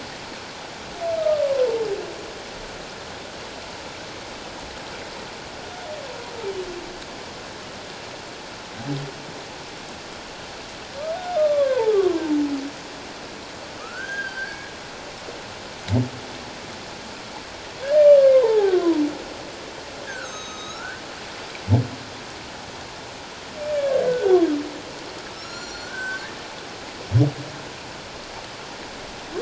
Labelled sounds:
1.2	1.8	humpback whale, 0.88 to 1.3 kHz
11.3	12.4	humpback whale, 0.81 to 1.3 kHz
13.8	14.6	humpback whale, 1.1 to 1.7 kHz
18.3	19.0	humpback whale, 0.78 to 1.8 kHz
20.1	21.0	humpback whale, 1.2 to 6.8 kHz
24.1	24.4	humpback whale, 1.4 to 1.6 kHz
25.3	26.3	humpback whale, 1.2 to 7.3 kHz

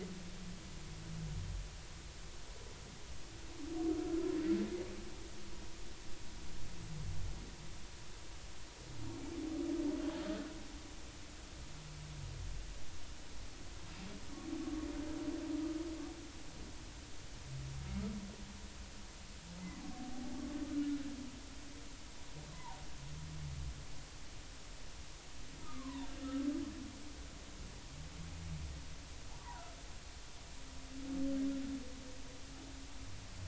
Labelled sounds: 22.5	22.8	humpback whale, 0.80 to 1.2 kHz
25.6	26.5	humpback whale, 0.86 to 1.4 kHz
29.3	29.6	humpback whale, 0.80 to 1.2 kHz

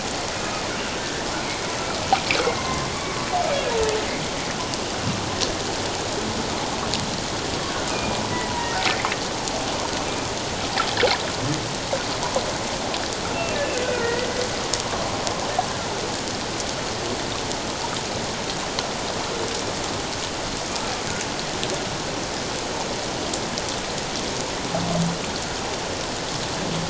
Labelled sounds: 1.0	1.7	humpback whale, 1.7 to 2.4 kHz
2.4	3.3	humpback whale, 0.94 to 2.2 kHz
7.9	8.7	humpback whale, 0.91 to 2.6 kHz
13.8	14.3	humpback whale, 1.3 to 2.0 kHz

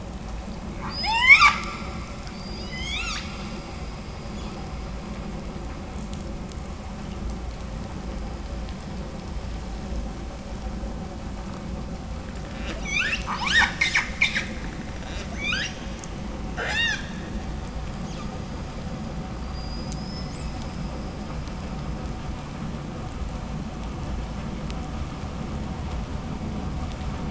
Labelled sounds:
0.7	5.7	killer whale, 0.33 to 8.0 kHz
12.4	15.7	killer whale, 0.36 to 8.0 kHz
16.5	17.1	killer whale, 0.11 to 8.0 kHz
18.0	18.3	killer whale, 1.9 to 7.0 kHz
19.3	21.1	killer whale, 1.5 to 8.0 kHz

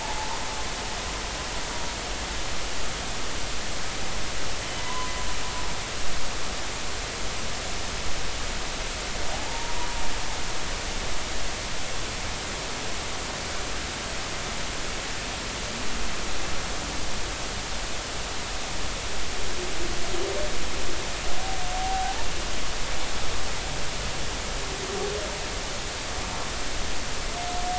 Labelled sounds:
4.8	5.1	humpback whale, 0.93 to 1.1 kHz
9.3	9.7	humpback whale, 0.80 to 0.99 kHz
21.8	22.2	humpback whale, 0.80 to 0.86 kHz

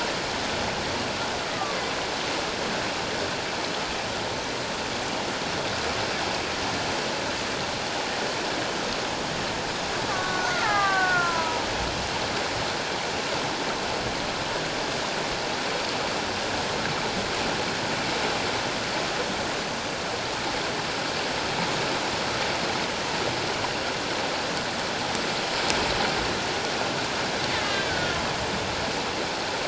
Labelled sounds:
1.5	1.8	killer whale, Bigg's (transient), 1.1 to 1.3 kHz
10.1	11.6	killer whale, Bigg's (transient), 0.78 to 2.2 kHz
27.6	28.2	killer whale, Bigg's (transient), 1.3 to 3.8 kHz

